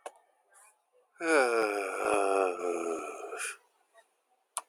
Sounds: Sigh